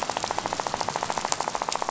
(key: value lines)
label: biophony, rattle
recorder: SoundTrap 500